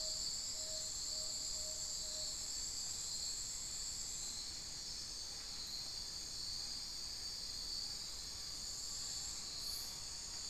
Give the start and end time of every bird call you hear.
0.0s-2.7s: Tawny-bellied Screech-Owl (Megascops watsonii)
8.3s-10.2s: Amazonian Pygmy-Owl (Glaucidium hardyi)

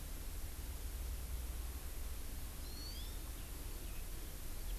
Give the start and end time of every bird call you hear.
2.6s-3.2s: Hawaii Amakihi (Chlorodrepanis virens)

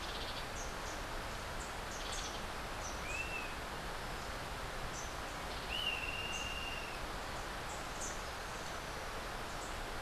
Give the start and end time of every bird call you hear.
0.0s-0.5s: Hoffmann's Woodpecker (Melanerpes hoffmannii)
3.0s-3.6s: Dusky-capped Flycatcher (Myiarchus tuberculifer)
5.6s-7.0s: Dusky-capped Flycatcher (Myiarchus tuberculifer)

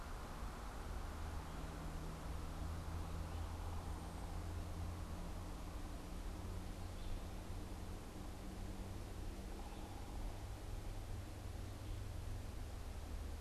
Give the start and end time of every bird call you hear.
0.0s-13.4s: Red-eyed Vireo (Vireo olivaceus)

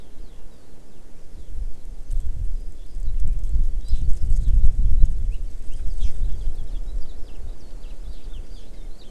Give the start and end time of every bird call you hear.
0.0s-5.1s: Eurasian Skylark (Alauda arvensis)
3.8s-4.0s: Hawaii Amakihi (Chlorodrepanis virens)
5.9s-6.1s: Hawaii Amakihi (Chlorodrepanis virens)
6.2s-9.1s: Warbling White-eye (Zosterops japonicus)

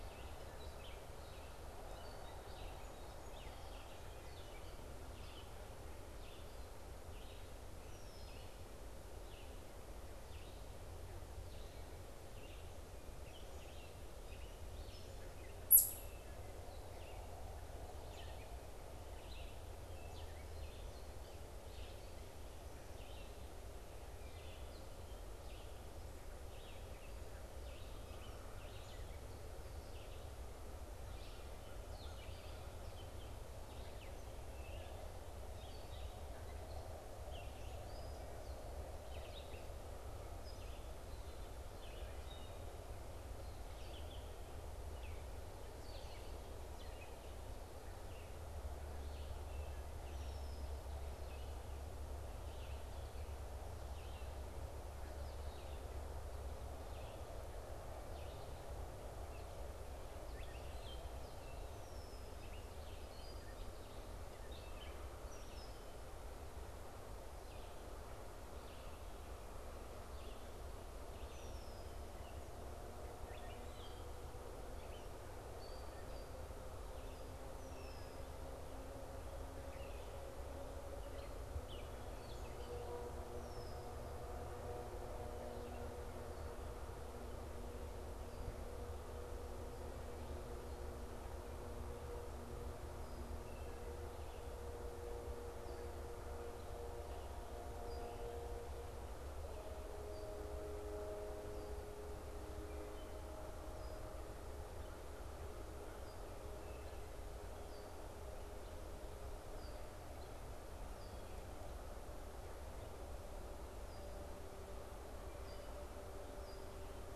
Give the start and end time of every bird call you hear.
0.0s-4.8s: Gray Catbird (Dumetella carolinensis)
0.0s-12.6s: Red-eyed Vireo (Vireo olivaceus)
2.7s-4.4s: Song Sparrow (Melospiza melodia)
12.9s-72.4s: unidentified bird
30.9s-32.8s: American Crow (Corvus brachyrhynchos)
50.0s-50.8s: Red-winged Blackbird (Agelaius phoeniceus)
71.2s-72.1s: Red-winged Blackbird (Agelaius phoeniceus)
72.8s-83.2s: Gray Catbird (Dumetella carolinensis)
77.4s-78.3s: Red-winged Blackbird (Agelaius phoeniceus)
83.3s-83.9s: Red-winged Blackbird (Agelaius phoeniceus)
102.6s-103.3s: Wood Thrush (Hylocichla mustelina)
106.6s-107.3s: Wood Thrush (Hylocichla mustelina)

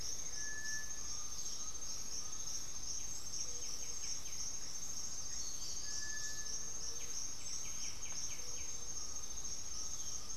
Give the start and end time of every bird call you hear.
0.0s-1.3s: Blue-gray Saltator (Saltator coerulescens)
0.0s-10.4s: Gray-fronted Dove (Leptotila rufaxilla)
1.0s-2.0s: unidentified bird
1.0s-2.6s: Undulated Tinamou (Crypturellus undulatus)
3.0s-10.4s: White-winged Becard (Pachyramphus polychopterus)
5.8s-6.6s: Cinereous Tinamou (Crypturellus cinereus)
8.8s-10.4s: Undulated Tinamou (Crypturellus undulatus)
9.7s-10.4s: unidentified bird

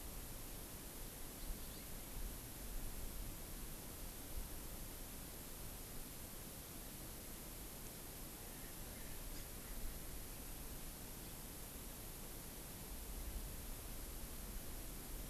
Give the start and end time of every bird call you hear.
8.4s-10.3s: Erckel's Francolin (Pternistis erckelii)

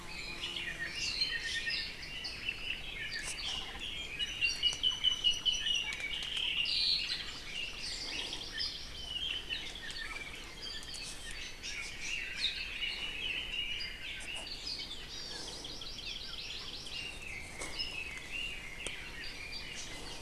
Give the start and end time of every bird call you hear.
0.0s-2.9s: Red-billed Leiothrix (Leiothrix lutea)
0.9s-2.0s: Apapane (Himatione sanguinea)
2.9s-7.1s: Apapane (Himatione sanguinea)
7.3s-9.2s: Hawaii Amakihi (Chlorodrepanis virens)
8.9s-10.5s: Red-billed Leiothrix (Leiothrix lutea)
11.7s-14.5s: Red-billed Leiothrix (Leiothrix lutea)
15.0s-17.2s: Hawaii Amakihi (Chlorodrepanis virens)
16.9s-19.5s: Red-billed Leiothrix (Leiothrix lutea)

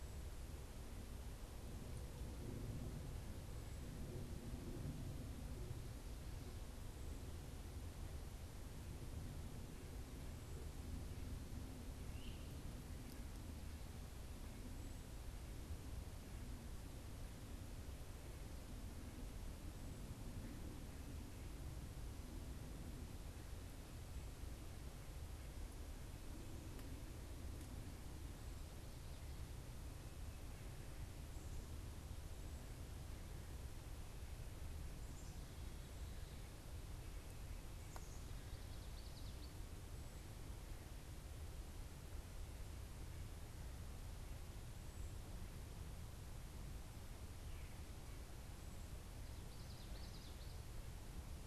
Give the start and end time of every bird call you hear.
12.1s-12.5s: Great Crested Flycatcher (Myiarchus crinitus)
34.7s-38.4s: Black-capped Chickadee (Poecile atricapillus)
38.1s-39.6s: Common Yellowthroat (Geothlypis trichas)
49.3s-50.8s: Common Yellowthroat (Geothlypis trichas)

